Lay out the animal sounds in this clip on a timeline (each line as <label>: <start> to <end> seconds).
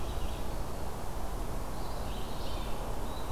Black-throated Green Warbler (Setophaga virens): 0.0 to 1.0 seconds
Red-eyed Vireo (Vireo olivaceus): 0.0 to 3.3 seconds